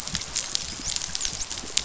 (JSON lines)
{"label": "biophony, dolphin", "recorder": "SoundTrap 500"}